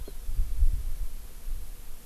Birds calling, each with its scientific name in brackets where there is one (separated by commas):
Hawaii Amakihi (Chlorodrepanis virens)